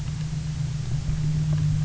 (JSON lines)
{"label": "anthrophony, boat engine", "recorder": "SoundTrap 300"}